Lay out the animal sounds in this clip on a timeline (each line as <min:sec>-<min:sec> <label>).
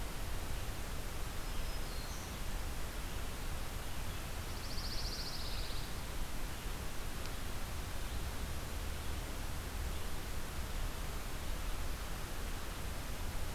0:01.3-0:02.4 Black-throated Green Warbler (Setophaga virens)
0:04.4-0:05.9 Pine Warbler (Setophaga pinus)